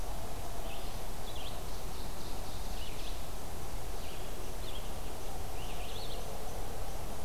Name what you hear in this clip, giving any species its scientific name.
Vireo olivaceus, Seiurus aurocapilla